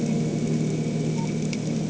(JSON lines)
{"label": "anthrophony, boat engine", "recorder": "HydroMoth"}